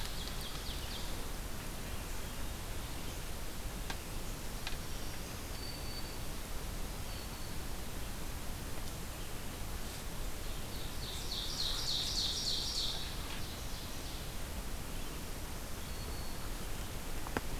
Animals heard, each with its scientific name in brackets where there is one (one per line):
Black-throated Green Warbler (Setophaga virens)
Ovenbird (Seiurus aurocapilla)